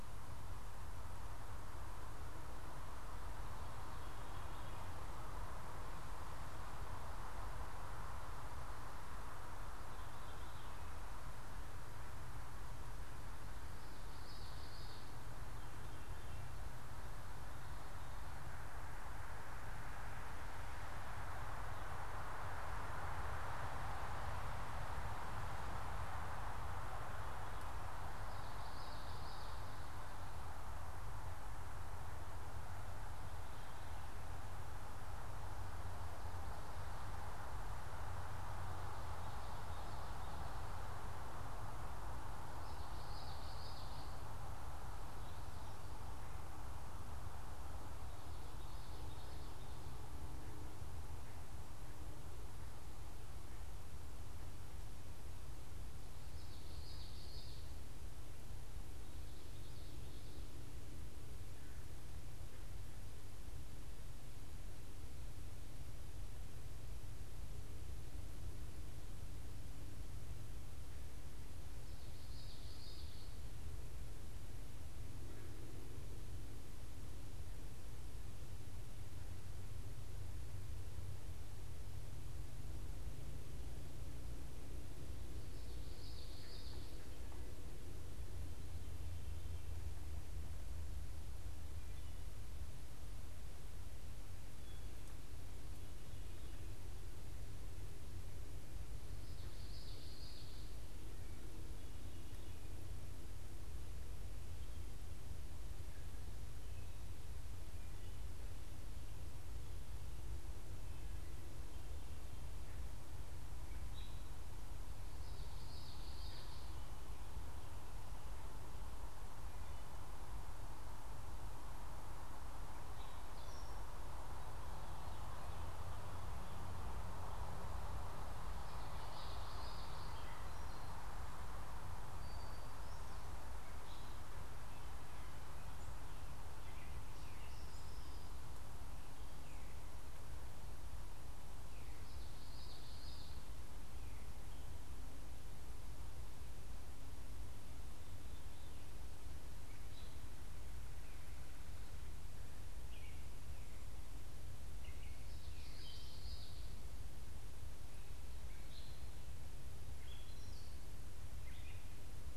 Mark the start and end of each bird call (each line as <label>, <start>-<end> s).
Veery (Catharus fuscescens), 3.6-5.1 s
Veery (Catharus fuscescens), 9.7-11.0 s
Common Yellowthroat (Geothlypis trichas), 13.9-15.1 s
Veery (Catharus fuscescens), 15.4-16.6 s
Common Yellowthroat (Geothlypis trichas), 28.2-29.6 s
Common Yellowthroat (Geothlypis trichas), 38.8-40.4 s
Common Yellowthroat (Geothlypis trichas), 42.5-44.3 s
Common Yellowthroat (Geothlypis trichas), 48.4-49.8 s
Common Yellowthroat (Geothlypis trichas), 56.2-57.8 s
Common Yellowthroat (Geothlypis trichas), 72.0-73.4 s
Common Yellowthroat (Geothlypis trichas), 85.8-86.9 s
Wood Thrush (Hylocichla mustelina), 91.1-95.2 s
Common Yellowthroat (Geothlypis trichas), 99.3-100.7 s
Gray Catbird (Dumetella carolinensis), 113.6-114.3 s
Common Yellowthroat (Geothlypis trichas), 115.3-116.8 s
Gray Catbird (Dumetella carolinensis), 122.7-123.9 s
Common Yellowthroat (Geothlypis trichas), 128.7-130.2 s
Gray Catbird (Dumetella carolinensis), 130.1-139.4 s
Common Yellowthroat (Geothlypis trichas), 142.1-143.4 s
Gray Catbird (Dumetella carolinensis), 148.8-155.3 s
Common Yellowthroat (Geothlypis trichas), 155.5-156.7 s
Gray Catbird (Dumetella carolinensis), 158.3-162.3 s